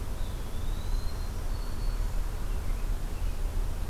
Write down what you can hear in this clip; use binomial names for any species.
Contopus virens, Setophaga virens